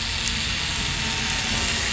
{"label": "anthrophony, boat engine", "recorder": "SoundTrap 500"}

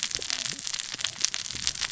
{"label": "biophony, cascading saw", "recorder": "SoundTrap 600 or HydroMoth"}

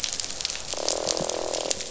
{"label": "biophony, croak", "recorder": "SoundTrap 500"}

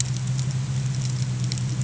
{"label": "anthrophony, boat engine", "recorder": "HydroMoth"}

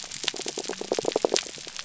{"label": "biophony", "recorder": "SoundTrap 300"}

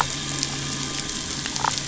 {"label": "anthrophony, boat engine", "recorder": "SoundTrap 500"}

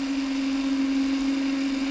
{"label": "anthrophony, boat engine", "recorder": "SoundTrap 300"}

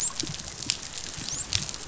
{"label": "biophony, dolphin", "recorder": "SoundTrap 500"}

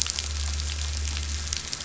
{"label": "anthrophony, boat engine", "recorder": "SoundTrap 500"}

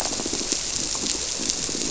{"label": "biophony, squirrelfish (Holocentrus)", "recorder": "SoundTrap 300"}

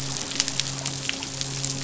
{"label": "biophony, midshipman", "recorder": "SoundTrap 500"}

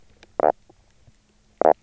{"label": "biophony, knock croak", "recorder": "SoundTrap 300"}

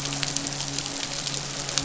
{"label": "biophony, midshipman", "recorder": "SoundTrap 500"}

